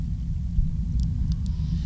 {"label": "anthrophony, boat engine", "recorder": "SoundTrap 300"}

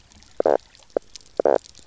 {"label": "biophony, knock croak", "recorder": "SoundTrap 300"}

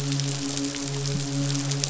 {"label": "biophony, midshipman", "recorder": "SoundTrap 500"}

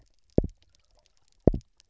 {"label": "biophony, double pulse", "recorder": "SoundTrap 300"}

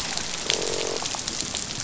{"label": "biophony, croak", "recorder": "SoundTrap 500"}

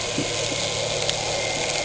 {"label": "anthrophony, boat engine", "recorder": "HydroMoth"}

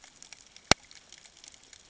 {"label": "ambient", "recorder": "HydroMoth"}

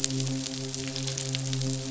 {"label": "biophony, midshipman", "recorder": "SoundTrap 500"}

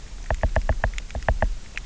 {"label": "biophony, knock", "recorder": "SoundTrap 300"}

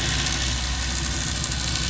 {"label": "anthrophony, boat engine", "recorder": "SoundTrap 500"}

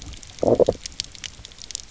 {"label": "biophony, low growl", "recorder": "SoundTrap 300"}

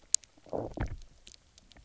{"label": "biophony, low growl", "recorder": "SoundTrap 300"}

